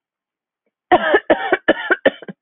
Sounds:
Cough